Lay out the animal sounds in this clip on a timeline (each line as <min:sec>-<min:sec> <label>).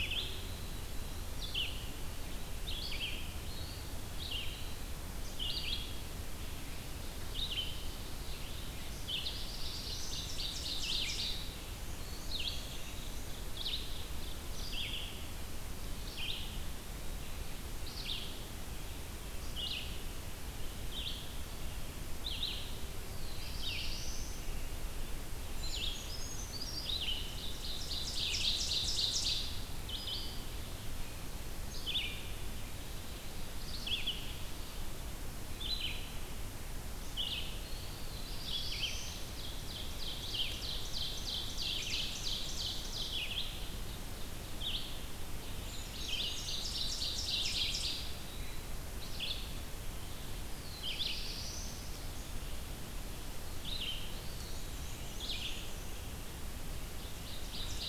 0:00.0-0:42.1 Red-eyed Vireo (Vireo olivaceus)
0:04.1-0:05.0 Eastern Wood-Pewee (Contopus virens)
0:08.6-0:10.6 Black-throated Blue Warbler (Setophaga caerulescens)
0:08.9-0:11.5 Ovenbird (Seiurus aurocapilla)
0:12.5-0:13.5 Eastern Wood-Pewee (Contopus virens)
0:22.9-0:24.8 Black-throated Blue Warbler (Setophaga caerulescens)
0:25.4-0:27.2 Brown Creeper (Certhia americana)
0:27.1-0:29.6 Ovenbird (Seiurus aurocapilla)
0:37.4-0:39.6 Black-throated Blue Warbler (Setophaga caerulescens)
0:39.4-0:43.4 Ovenbird (Seiurus aurocapilla)
0:42.9-0:57.9 Red-eyed Vireo (Vireo olivaceus)
0:45.4-0:48.3 Ovenbird (Seiurus aurocapilla)
0:45.6-0:47.2 Brown Creeper (Certhia americana)
0:47.8-0:48.8 Eastern Wood-Pewee (Contopus virens)
0:50.3-0:52.2 Black-throated Blue Warbler (Setophaga caerulescens)
0:54.1-0:55.1 Eastern Wood-Pewee (Contopus virens)
0:54.1-0:56.0 Black-and-white Warbler (Mniotilta varia)
0:56.9-0:57.9 Ovenbird (Seiurus aurocapilla)